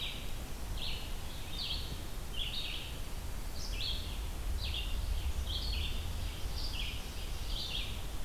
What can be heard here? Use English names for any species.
Red-eyed Vireo, White-throated Sparrow, Ovenbird